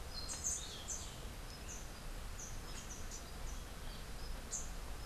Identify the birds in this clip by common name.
Orange-billed Nightingale-Thrush